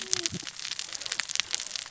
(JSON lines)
{"label": "biophony, cascading saw", "recorder": "SoundTrap 600 or HydroMoth"}